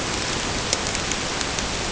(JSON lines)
{"label": "ambient", "recorder": "HydroMoth"}